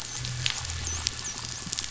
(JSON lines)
{"label": "biophony, dolphin", "recorder": "SoundTrap 500"}